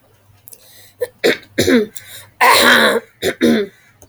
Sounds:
Throat clearing